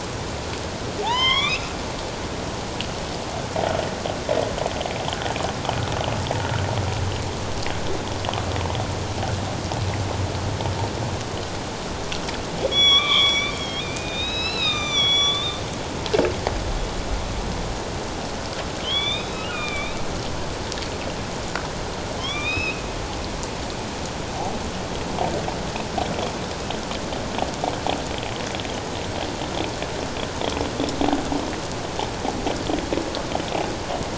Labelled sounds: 1.1	1.7	humpback whale, 1.7 to 6.0 kHz
12.7	15.6	humpback whale, 1.0 to 7.4 kHz
18.8	20.0	humpback whale, 1.1 to 6.2 kHz
22.2	22.8	humpback whale, 0.97 to 5.3 kHz

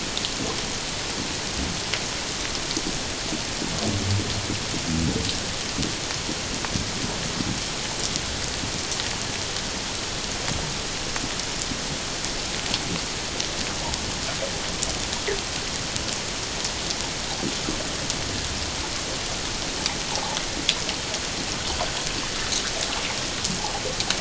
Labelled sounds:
20.1	20.4	water noise, 0.78 to 1.0 kHz

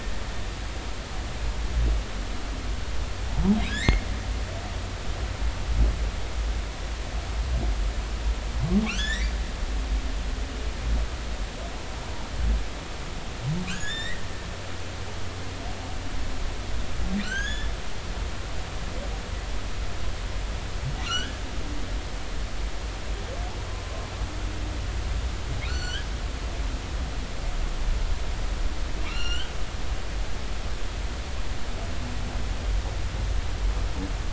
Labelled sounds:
3.7	4.0	humpback whale, 1.6 to 2.2 kHz
8.8	9.3	humpback whale, 1.1 to 6.0 kHz
13.7	14.2	humpback whale, 1.4 to 7.6 kHz
17.2	17.7	humpback whale, 1.3 to 6.7 kHz
21.0	21.4	humpback whale, 1.3 to 6.2 kHz
25.7	26.1	humpback whale, 1.3 to 7.5 kHz
29.1	29.5	humpback whale, 1.2 to 5.9 kHz

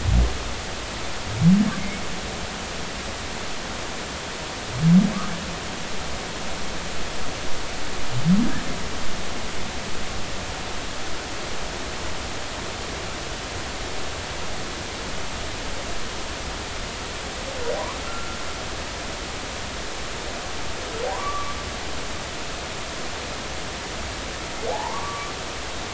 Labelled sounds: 18.0	18.4	humpback whale, 1.3 to 1.4 kHz
21.1	21.6	humpback whale, 0.90 to 1.2 kHz
24.7	25.3	humpback whale, 0.80 to 1.2 kHz

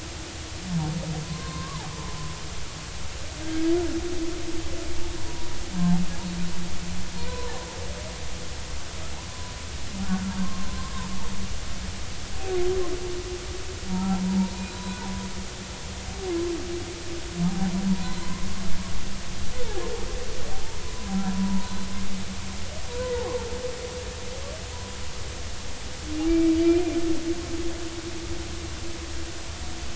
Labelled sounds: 1.2	2.2	humpback whale, 0.80 to 3.8 kHz
7.3	7.6	humpback whale, 0.80 to 1.1 kHz
10.4	10.7	humpback whale, 0.99 to 1.1 kHz
13.9	15.2	humpback whale, 0.80 to 4.1 kHz
17.4	18.4	humpback whale, 0.80 to 4.2 kHz
20.8	21.9	humpback whale, 0.86 to 4.1 kHz
26.3	26.8	humpback whale, 2.3 to 2.5 kHz

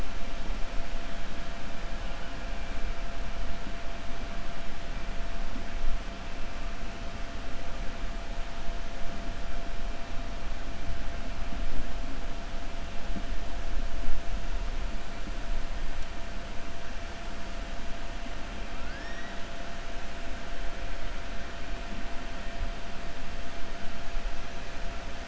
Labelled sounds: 18.7	19.4	killer whale, 1.4 to 5.8 kHz

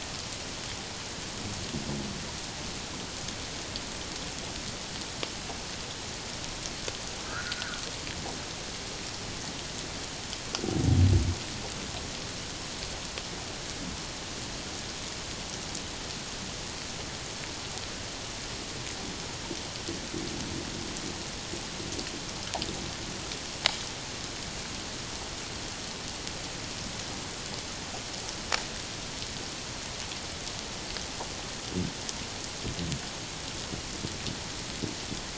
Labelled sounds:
7.3	7.8	humpback whale, 1.2 to 1.7 kHz

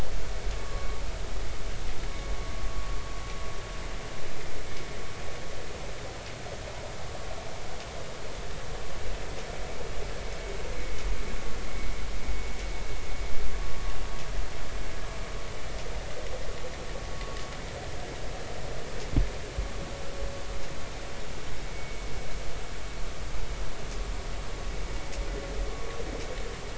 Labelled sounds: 0.5	1.0	vessel noise, 1.0 to 1.2 kHz
21.7	22.0	vessel noise, 2.2 to 2.3 kHz

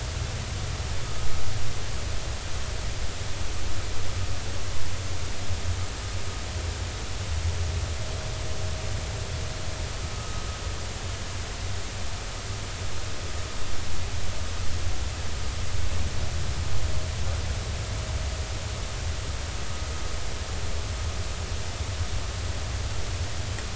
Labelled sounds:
10.1	10.4	vessel noise, 1.2 to 1.3 kHz

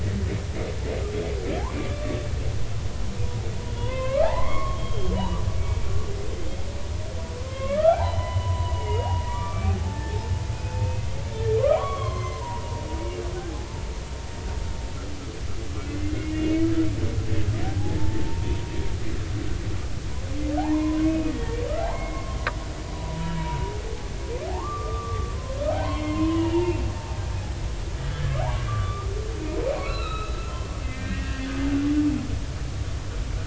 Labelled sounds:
1.7	2.2	humpback whale, 1.1 to 2.4 kHz
3.8	5.1	humpback whale, 0.80 to 3.3 kHz
7.4	13.4	humpback whale, 0.80 to 6.3 kHz
15.9	16.7	humpback whale, 2.0 to 3.0 kHz
17.6	18.7	humpback whale, 0.80 to 0.99 kHz
20.6	22.4	humpback whale, 0.80 to 2.6 kHz
22.9	23.6	humpback whale, 0.90 to 3.1 kHz
24.6	27.2	humpback whale, 0.86 to 3.3 kHz
28.4	29.1	humpback whale, 0.80 to 1.3 kHz
29.8	31.5	humpback whale, 0.99 to 4.1 kHz

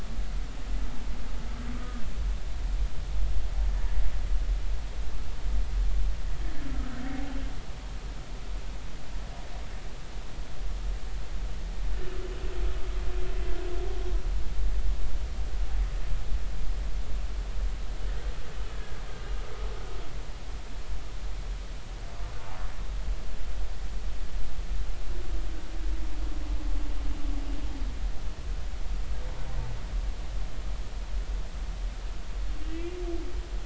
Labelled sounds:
1.8	2.0	humpback whale, 1.2 to 1.3 kHz

